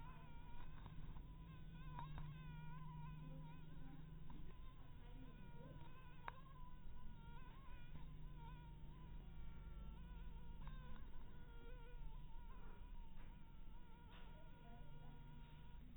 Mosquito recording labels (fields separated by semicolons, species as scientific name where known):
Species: mosquito; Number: one; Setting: cup